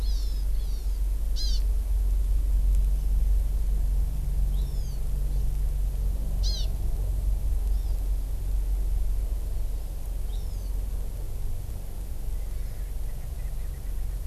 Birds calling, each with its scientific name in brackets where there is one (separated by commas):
Erckel's Francolin (Pternistis erckelii), Hawaii Amakihi (Chlorodrepanis virens)